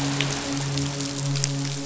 {"label": "biophony, midshipman", "recorder": "SoundTrap 500"}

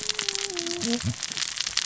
{"label": "biophony, cascading saw", "recorder": "SoundTrap 600 or HydroMoth"}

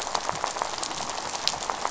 {"label": "biophony, rattle", "recorder": "SoundTrap 500"}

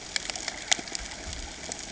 {"label": "ambient", "recorder": "HydroMoth"}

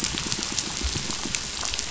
{"label": "biophony, pulse", "recorder": "SoundTrap 500"}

